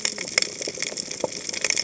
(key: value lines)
label: biophony, cascading saw
recorder: HydroMoth